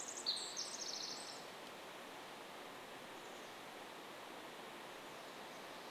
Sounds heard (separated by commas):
Pacific Wren song, Chestnut-backed Chickadee call